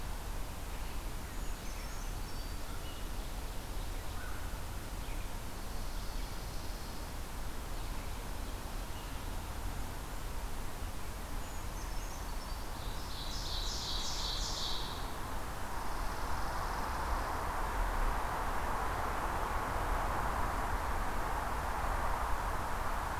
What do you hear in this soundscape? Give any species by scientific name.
Certhia americana, Corvus brachyrhynchos, Spizella passerina, Seiurus aurocapilla